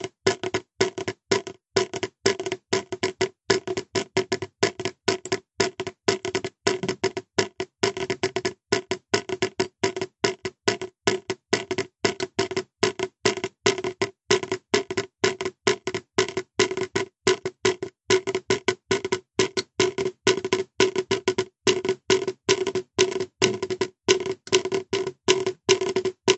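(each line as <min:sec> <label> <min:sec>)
0:00.0 Liquid dripping onto a plastic surface at irregular intervals. 0:26.4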